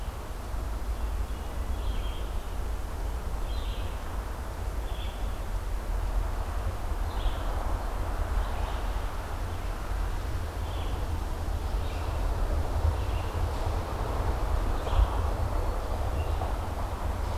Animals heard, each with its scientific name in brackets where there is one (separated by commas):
Red-eyed Vireo (Vireo olivaceus)